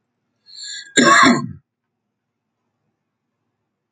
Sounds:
Cough